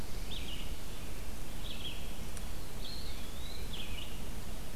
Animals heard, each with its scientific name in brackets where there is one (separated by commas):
Eastern Wood-Pewee (Contopus virens), Tufted Titmouse (Baeolophus bicolor), Red-eyed Vireo (Vireo olivaceus)